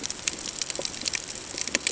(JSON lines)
{"label": "ambient", "recorder": "HydroMoth"}